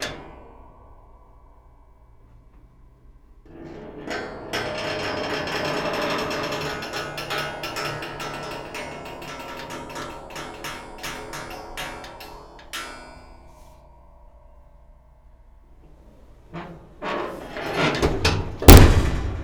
Does a steel object slam into something at the end?
yes